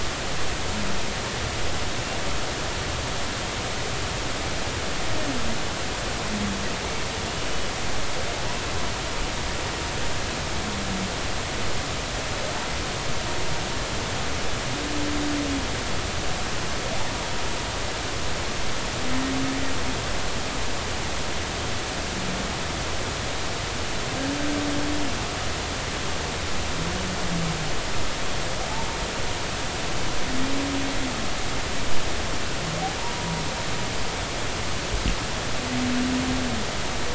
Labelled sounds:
8.3	8.6	humpback whale, 0.83 to 1.1 kHz
33.0	33.4	humpback whale, 0.86 to 1.0 kHz

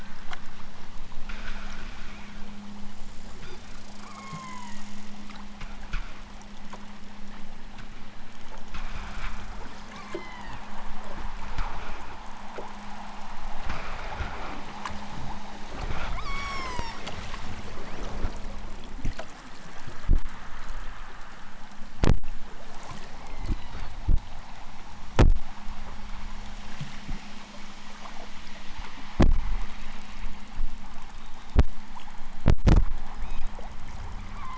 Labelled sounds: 4.0	4.9	killer whale, southern Alaska resident, 0.60 to 3.5 kHz
9.9	10.7	killer whale, southern Alaska resident, 0.64 to 5.3 kHz
16.2	17.0	killer whale, southern Alaska resident, 0.51 to 8.0 kHz
23.1	23.9	killer whale, southern Alaska resident, 1.3 to 4.8 kHz
33.1	33.4	killer whale, southern Alaska resident, 1.5 to 6.9 kHz
34.3	34.5	killer whale, southern Alaska resident, 0.64 to 4.7 kHz

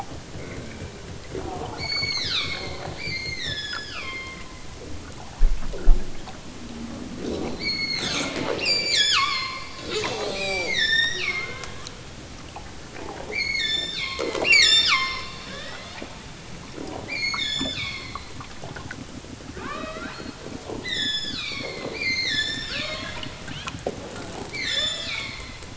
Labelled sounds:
1.7	4.5	killer whale, southern Alaska resident, 0.73 to 8.0 kHz
7.6	9.8	killer whale, southern Alaska resident, 0.64 to 8.0 kHz
10.3	11.8	killer whale, southern Alaska resident, 0.60 to 8.0 kHz
13.3	16.0	killer whale, southern Alaska resident, 0.32 to 8.0 kHz
17.1	18.2	killer whale, southern Alaska resident, 0.78 to 8.0 kHz
19.5	20.4	killer whale, southern Alaska resident, 0.41 to 5.5 kHz
20.8	23.1	killer whale, southern Alaska resident, 0.73 to 8.0 kHz
24.6	25.6	killer whale, southern Alaska resident, 1.1 to 8.0 kHz

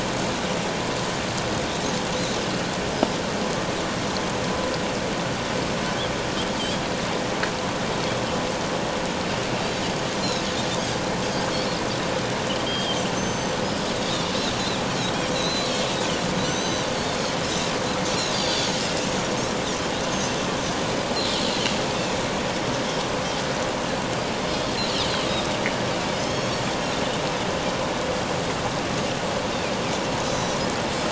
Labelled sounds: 9.6	9.9	Pacific white-sided dolphin, 3.7 to 4.0 kHz
10.7	11.0	Pacific white-sided dolphin, 4.6 to 5.0 kHz
12.7	13.6	Pacific white-sided dolphin, 3.1 to 6.3 kHz
14.0	14.2	Pacific white-sided dolphin, 3.5 to 4.0 kHz
15.2	15.7	Pacific white-sided dolphin, 3.7 to 6.3 kHz
16.4	17.2	Pacific white-sided dolphin, 3.7 to 6.3 kHz
18.3	18.7	Pacific white-sided dolphin, 3.4 to 4.8 kHz
20.1	20.4	Pacific white-sided dolphin, 5.8 to 6.7 kHz
26.1	26.6	Pacific white-sided dolphin, 3.1 to 5.6 kHz
30.2	30.6	Pacific white-sided dolphin, 3.8 to 7.0 kHz

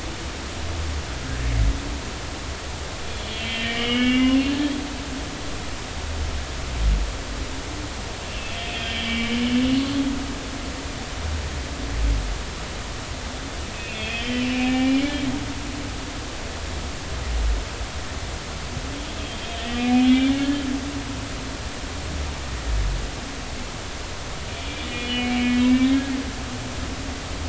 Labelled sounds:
3.2	4.7	humpback whale, 1.2 to 3.4 kHz
8.3	9.3	humpback whale, 2.4 to 3.4 kHz
13.7	15.0	humpback whale, 0.80 to 3.3 kHz
19.8	20.6	humpback whale, 1.6 to 3.7 kHz
24.8	26.0	humpback whale, 1.7 to 3.5 kHz

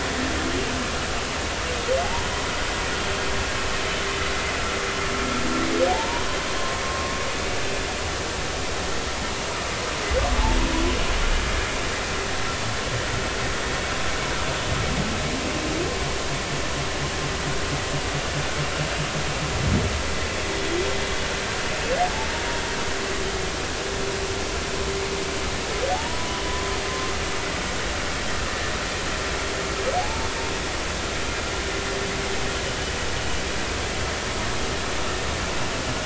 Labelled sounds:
2.0	2.3	humpback whale, 0.80 to 1.0 kHz
5.9	6.2	humpback whale, 0.80 to 1.0 kHz
25.9	26.4	humpback whale, 0.80 to 1.0 kHz
26.9	27.1	humpback whale, 1.0 to 1.1 kHz
30.0	30.3	humpback whale, 0.80 to 0.96 kHz

